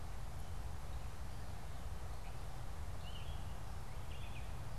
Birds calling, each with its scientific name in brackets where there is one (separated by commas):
Red-eyed Vireo (Vireo olivaceus)